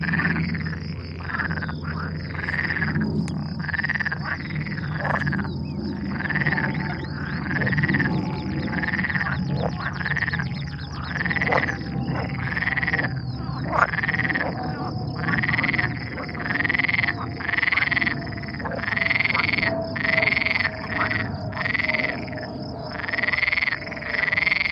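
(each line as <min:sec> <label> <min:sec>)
0:00.0 A humming sound of flying planes. 0:24.7
0:00.0 Several frogs croaking irregularly. 0:24.7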